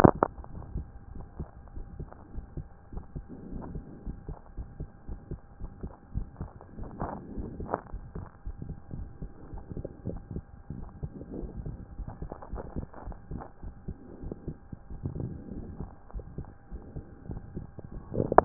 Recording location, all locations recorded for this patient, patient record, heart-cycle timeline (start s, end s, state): aortic valve (AV)
aortic valve (AV)+pulmonary valve (PV)+tricuspid valve (TV)+tricuspid valve (TV)+mitral valve (MV)
#Age: Child
#Sex: Female
#Height: 135.0 cm
#Weight: 33.5 kg
#Pregnancy status: False
#Murmur: Absent
#Murmur locations: nan
#Most audible location: nan
#Systolic murmur timing: nan
#Systolic murmur shape: nan
#Systolic murmur grading: nan
#Systolic murmur pitch: nan
#Systolic murmur quality: nan
#Diastolic murmur timing: nan
#Diastolic murmur shape: nan
#Diastolic murmur grading: nan
#Diastolic murmur pitch: nan
#Diastolic murmur quality: nan
#Outcome: Normal
#Campaign: 2014 screening campaign
0.00	1.16	unannotated
1.16	1.24	S1
1.24	1.38	systole
1.38	1.46	S2
1.46	1.76	diastole
1.76	1.86	S1
1.86	2.00	systole
2.00	2.08	S2
2.08	2.34	diastole
2.34	2.44	S1
2.44	2.57	systole
2.57	2.65	S2
2.65	2.93	diastole
2.93	3.03	S1
3.03	3.15	systole
3.15	3.24	S2
3.24	3.51	diastole
3.51	3.62	S1
3.62	3.74	systole
3.74	3.84	S2
3.84	4.06	diastole
4.06	4.16	S1
4.16	4.28	systole
4.28	4.36	S2
4.36	4.56	diastole
4.56	4.67	S1
4.67	4.80	systole
4.80	4.88	S2
4.88	5.08	diastole
5.08	5.17	S1
5.17	5.30	systole
5.30	5.40	S2
5.40	5.60	diastole
5.60	5.70	S1
5.70	5.82	systole
5.82	5.90	S2
5.90	6.14	diastole
6.14	6.25	S1
6.25	6.40	systole
6.40	6.50	S2
6.50	6.78	diastole
6.78	18.45	unannotated